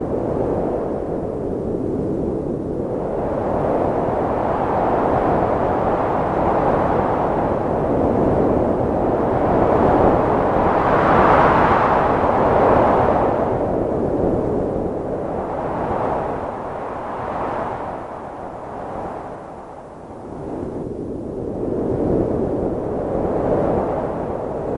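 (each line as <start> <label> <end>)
0.0 Strong wind is howling. 24.8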